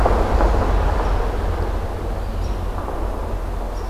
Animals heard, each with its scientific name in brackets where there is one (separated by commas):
Red-eyed Vireo (Vireo olivaceus)